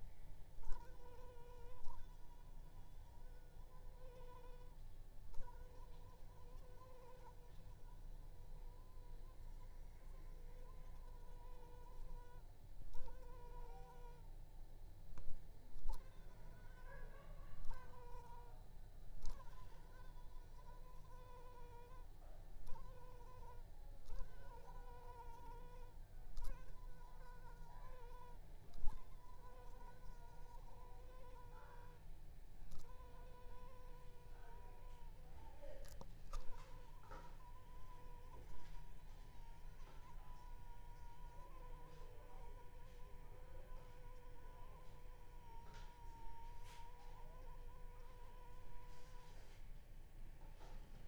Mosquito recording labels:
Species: Anopheles arabiensis; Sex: female; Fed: unfed; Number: one; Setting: cup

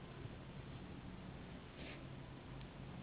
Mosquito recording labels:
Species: Anopheles gambiae s.s.; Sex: female; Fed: unfed; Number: one; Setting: insect culture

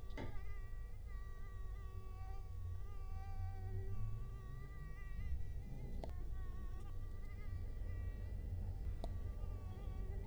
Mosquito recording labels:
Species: Culex quinquefasciatus; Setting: cup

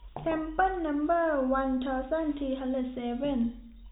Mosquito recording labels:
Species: no mosquito; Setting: cup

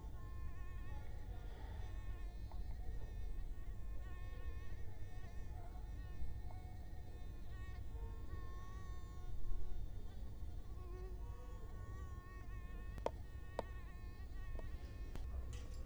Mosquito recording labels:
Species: Culex quinquefasciatus; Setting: cup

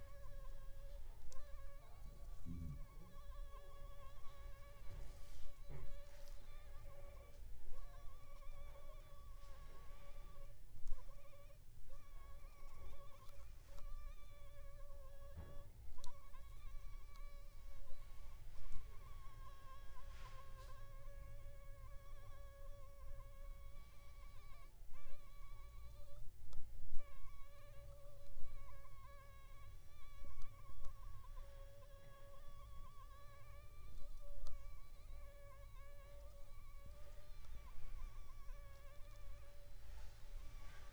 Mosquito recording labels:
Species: Anopheles funestus s.s.; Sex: female; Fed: unfed; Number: one; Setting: cup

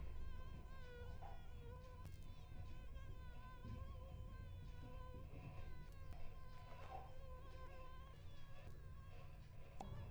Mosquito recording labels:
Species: Anopheles coluzzii; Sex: male; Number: one; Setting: cup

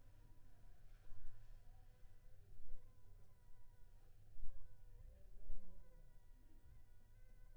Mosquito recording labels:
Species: Anopheles funestus s.s.; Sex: female; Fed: unfed; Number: one; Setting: cup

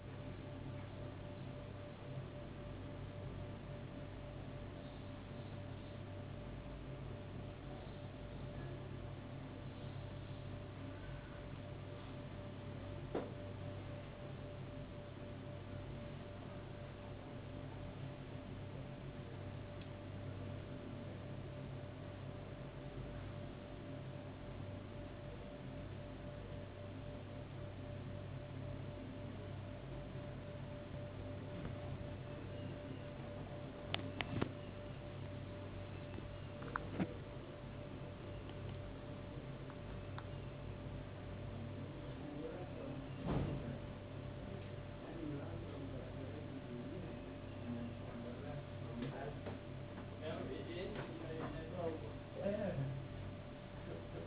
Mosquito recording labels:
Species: no mosquito; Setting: insect culture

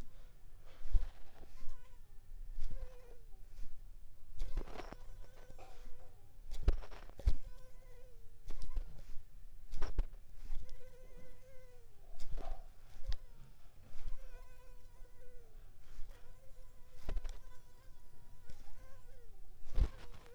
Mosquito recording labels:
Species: Anopheles arabiensis; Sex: female; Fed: unfed; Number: one; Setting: cup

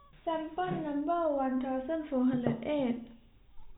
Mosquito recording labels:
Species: no mosquito; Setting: cup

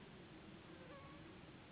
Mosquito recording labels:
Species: Anopheles gambiae s.s.; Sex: female; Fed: unfed; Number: one; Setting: insect culture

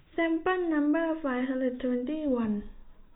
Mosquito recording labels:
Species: no mosquito; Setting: cup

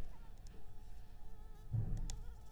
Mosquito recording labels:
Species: Anopheles arabiensis; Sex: female; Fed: unfed; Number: one; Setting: cup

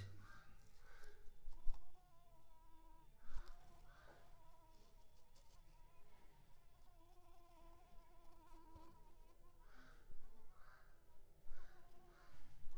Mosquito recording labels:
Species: Anopheles coustani; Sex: female; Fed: unfed; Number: one; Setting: cup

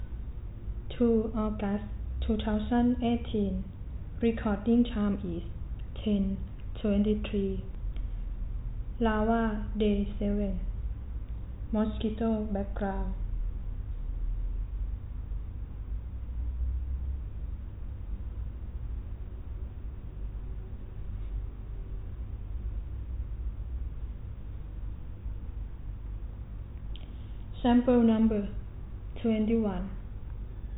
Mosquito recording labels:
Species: no mosquito; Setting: cup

